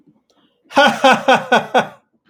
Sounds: Laughter